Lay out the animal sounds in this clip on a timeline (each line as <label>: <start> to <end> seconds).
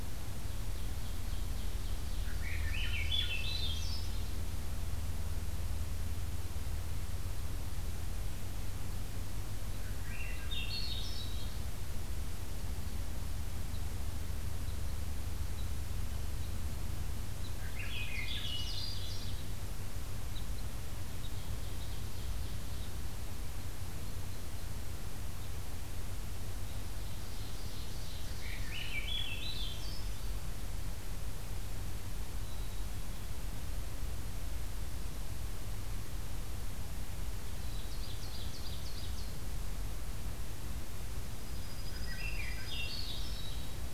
Ovenbird (Seiurus aurocapilla): 0.4 to 4.2 seconds
Swainson's Thrush (Catharus ustulatus): 2.2 to 4.1 seconds
Swainson's Thrush (Catharus ustulatus): 9.7 to 11.5 seconds
Red Crossbill (Loxia curvirostra): 12.5 to 25.6 seconds
Swainson's Thrush (Catharus ustulatus): 17.5 to 19.4 seconds
Ovenbird (Seiurus aurocapilla): 17.8 to 19.4 seconds
Ovenbird (Seiurus aurocapilla): 21.2 to 23.0 seconds
Ovenbird (Seiurus aurocapilla): 26.6 to 29.0 seconds
Swainson's Thrush (Catharus ustulatus): 28.4 to 30.3 seconds
Black-capped Chickadee (Poecile atricapillus): 32.4 to 33.3 seconds
Black-capped Chickadee (Poecile atricapillus): 37.5 to 38.0 seconds
Ovenbird (Seiurus aurocapilla): 37.5 to 39.4 seconds
Dark-eyed Junco (Junco hyemalis): 41.3 to 43.1 seconds
Ovenbird (Seiurus aurocapilla): 41.5 to 43.5 seconds
Swainson's Thrush (Catharus ustulatus): 41.8 to 43.8 seconds